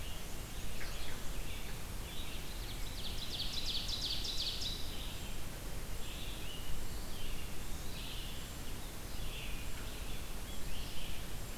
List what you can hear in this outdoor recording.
Black-and-white Warbler, Brown Creeper, Red-eyed Vireo, Ovenbird, Eastern Wood-Pewee